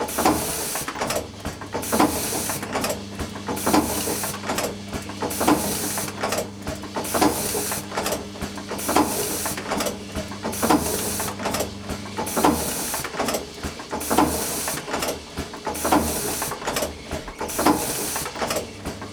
Does the copy machine keep printing the entire time?
yes